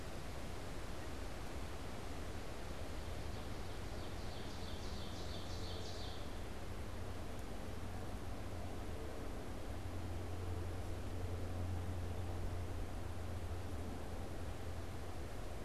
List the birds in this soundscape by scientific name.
Seiurus aurocapilla